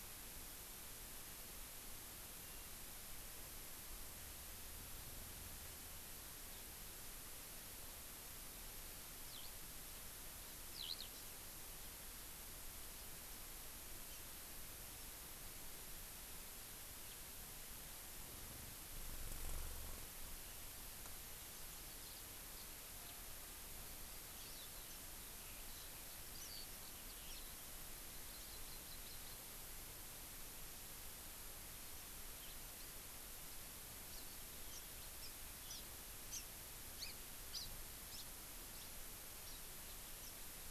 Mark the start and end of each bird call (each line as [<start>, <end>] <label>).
[2.38, 2.68] Warbling White-eye (Zosterops japonicus)
[6.48, 6.68] Eurasian Skylark (Alauda arvensis)
[9.28, 9.48] Eurasian Skylark (Alauda arvensis)
[10.68, 11.08] Eurasian Skylark (Alauda arvensis)
[21.98, 22.28] House Finch (Haemorhous mexicanus)
[22.58, 22.68] House Finch (Haemorhous mexicanus)
[22.98, 23.18] House Finch (Haemorhous mexicanus)
[23.88, 27.88] Eurasian Skylark (Alauda arvensis)
[28.08, 29.38] Hawaii Amakihi (Chlorodrepanis virens)
[32.38, 32.58] House Finch (Haemorhous mexicanus)
[34.08, 34.28] Hawaii Amakihi (Chlorodrepanis virens)
[34.68, 34.88] House Finch (Haemorhous mexicanus)
[35.18, 35.28] House Finch (Haemorhous mexicanus)
[35.58, 35.88] House Finch (Haemorhous mexicanus)
[36.28, 36.48] House Finch (Haemorhous mexicanus)
[36.98, 37.18] Hawaii Amakihi (Chlorodrepanis virens)
[37.48, 37.68] Hawaii Amakihi (Chlorodrepanis virens)
[38.08, 38.28] Hawaii Amakihi (Chlorodrepanis virens)
[38.68, 38.88] Hawaii Amakihi (Chlorodrepanis virens)
[39.38, 39.58] Hawaii Amakihi (Chlorodrepanis virens)
[40.18, 40.28] House Finch (Haemorhous mexicanus)